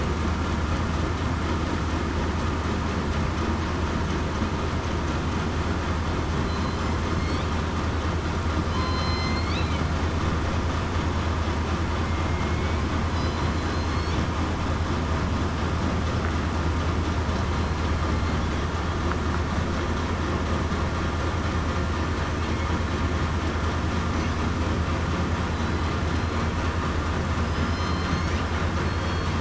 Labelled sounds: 6.4	6.8	killer whale, southern resident, 4.0 to 4.1 kHz
8.7	9.6	killer whale, southern resident, 2.0 to 5.2 kHz
12.3	12.8	killer whale, southern resident, 2.1 to 2.3 kHz
13.1	14.1	killer whale, southern resident, 4.0 to 4.5 kHz
27.4	28.0	killer whale, southern resident, 5.0 to 5.2 kHz
28.8	29.3	killer whale, southern resident, 4.2 to 4.5 kHz

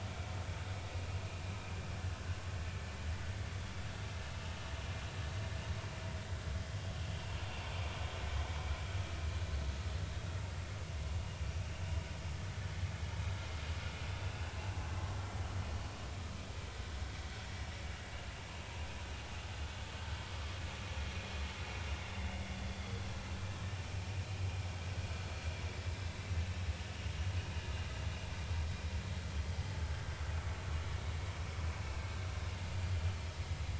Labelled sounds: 14.2	14.8	vessel noise, 2.5 to 2.8 kHz

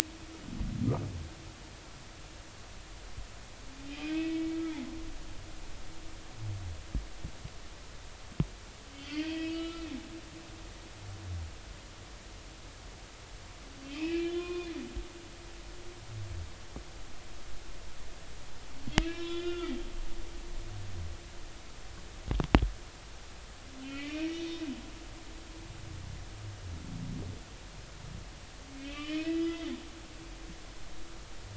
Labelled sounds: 3.9	4.6	humpback whale, 2.2 to 2.7 kHz
8.9	9.9	humpback whale, 1.2 to 4.0 kHz
13.9	14.7	humpback whale, 0.99 to 3.6 kHz
19.0	20.3	humpback whale, 0.99 to 5.0 kHz
23.8	24.6	humpback whale, 1.9 to 6.0 kHz
28.8	29.7	humpback whale, 1.1 to 3.7 kHz

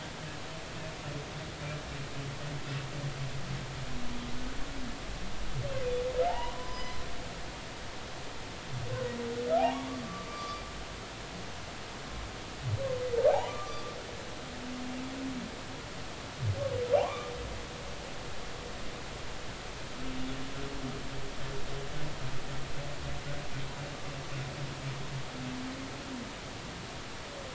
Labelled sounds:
6.3	7.0	humpback whale, 0.80 to 5.2 kHz
7.6	7.8	humpback whale, 0.96 to 1.1 kHz
9.6	9.9	humpback whale, 0.80 to 2.5 kHz
10.3	10.6	humpback whale, 1.1 to 4.7 kHz
13.3	13.8	humpback whale, 0.80 to 1.2 kHz
17.0	17.3	humpback whale, 0.80 to 1.2 kHz

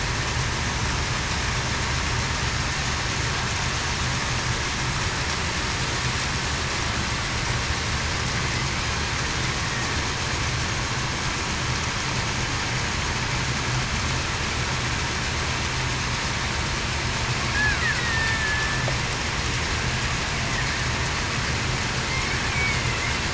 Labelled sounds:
18.0	18.8	killer whale, Bigg's (transient), 1.7 to 2.0 kHz
22.5	22.8	killer whale, Bigg's (transient), 2.1 to 2.5 kHz

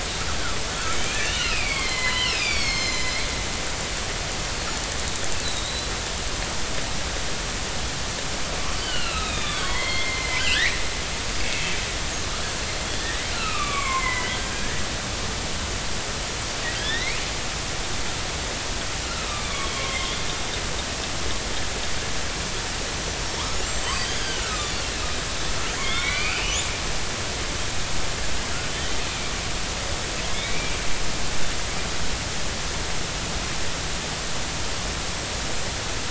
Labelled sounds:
0.9	3.2	killer whale, northern resident, 0.96 to 7.2 kHz
5.4	5.9	killer whale, northern resident, 3.7 to 4.1 kHz
8.7	10.8	killer whale, northern resident, 0.93 to 5.1 kHz
11.4	11.7	killer whale, northern resident, 2.1 to 2.7 kHz
13.0	14.8	killer whale, northern resident, 0.96 to 7.6 kHz
16.8	17.2	killer whale, northern resident, 1.5 to 4.2 kHz
19.2	20.2	killer whale, northern resident, 2.0 to 3.6 kHz
22.9	24.8	killer whale, northern resident, 0.90 to 7.8 kHz
25.8	27.4	killer whale, northern resident, 1.1 to 3.8 kHz
30.3	30.8	killer whale, northern resident, 2.1 to 2.7 kHz

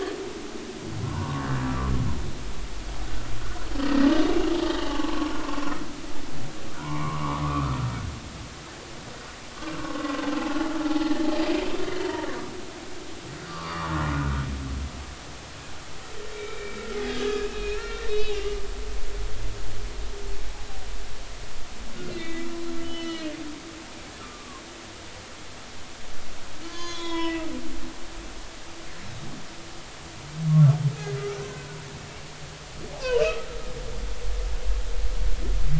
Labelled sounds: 0.2	0.4	humpback whale, 2.2 to 2.4 kHz
1.0	1.5	humpback whale, 0.90 to 1.2 kHz
3.8	5.5	humpback whale, 0.83 to 3.2 kHz
6.8	8.0	humpback whale, 0.86 to 2.4 kHz
9.8	10.2	humpback whale, 1.0 to 1.2 kHz
12.0	12.3	humpback whale, 0.86 to 0.99 kHz
13.5	14.4	humpback whale, 0.90 to 1.6 kHz
16.3	18.6	humpback whale, 1.3 to 4.4 kHz
19.1	19.3	humpback whale, 3.7 to 3.9 kHz
22.1	22.5	humpback whale, 1.9 to 4.1 kHz
22.8	23.3	humpback whale, 1.9 to 5.4 kHz
24.2	24.6	humpback whale, 0.99 to 1.4 kHz
26.6	27.5	humpback whale, 0.93 to 6.6 kHz
30.5	30.8	humpback whale, 1.0 to 1.2 kHz
31.2	31.7	humpback whale, 1.2 to 1.6 kHz
33.0	33.5	humpback whale, 1.2 to 6.6 kHz

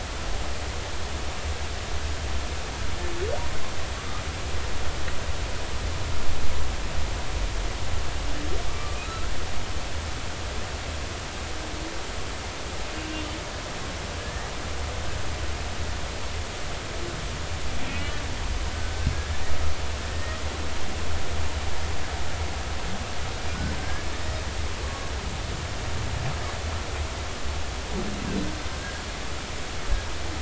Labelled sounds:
9.0	9.3	humpback whale, 1.2 to 1.5 kHz
14.2	14.5	humpback whale, 1.6 to 2.0 kHz
17.8	18.2	humpback whale, 1.8 to 3.0 kHz
20.0	20.4	humpback whale, 1.8 to 1.9 kHz
23.8	25.1	humpback whale, 1.1 to 1.8 kHz
28.8	29.0	humpback whale, 1.6 to 1.7 kHz

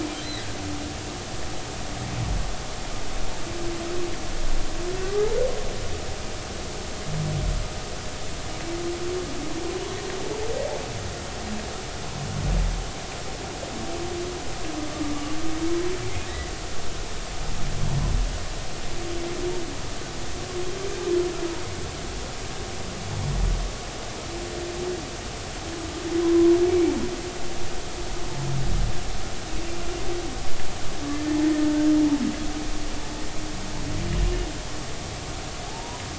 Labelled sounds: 5.0	5.3	humpback whale, 1.1 to 1.3 kHz
26.2	26.5	humpback whale, 0.93 to 1.1 kHz
31.1	31.4	humpback whale, 1.7 to 1.9 kHz
35.7	36.0	humpback whale, 0.80 to 1.1 kHz

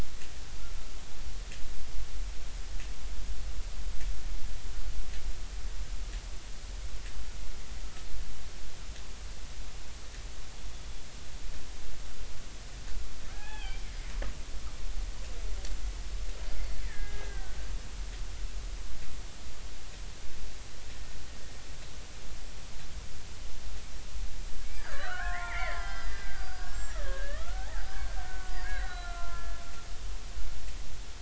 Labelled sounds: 13.3	13.9	killer whale, Bigg's (transient), 0.80 to 3.5 kHz
16.8	17.6	killer whale, Bigg's (transient), 1.4 to 2.1 kHz
24.7	27.9	killer whale, Bigg's (transient), 0.80 to 5.8 kHz
28.2	29.6	killer whale, Bigg's (transient), 0.99 to 4.0 kHz

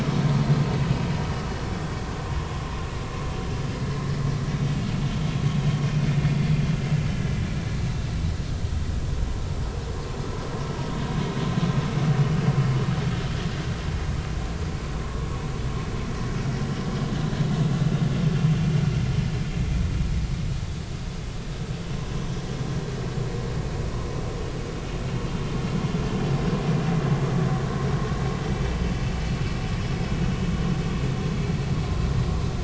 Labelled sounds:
15.0	15.3	vessel noise, 0.99 to 1.2 kHz

